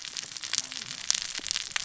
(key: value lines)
label: biophony, cascading saw
recorder: SoundTrap 600 or HydroMoth